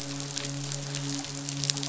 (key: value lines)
label: biophony, midshipman
recorder: SoundTrap 500